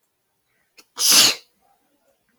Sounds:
Sneeze